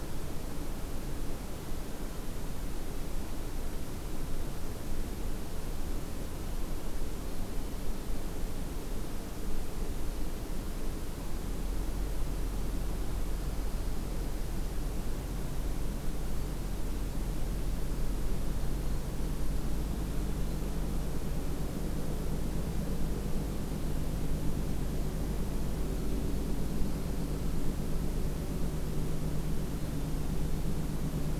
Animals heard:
forest ambience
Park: Acadia National Park